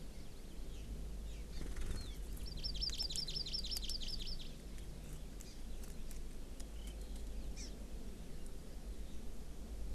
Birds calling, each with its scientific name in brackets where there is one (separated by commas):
Hawaii Amakihi (Chlorodrepanis virens)